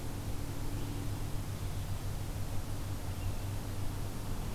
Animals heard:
forest ambience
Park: Marsh-Billings-Rockefeller National Historical Park